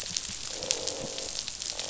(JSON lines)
{"label": "biophony, croak", "recorder": "SoundTrap 500"}